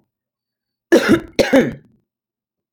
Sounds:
Cough